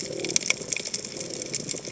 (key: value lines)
label: biophony
recorder: HydroMoth